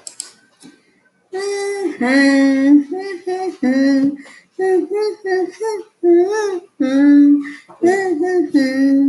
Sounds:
Sigh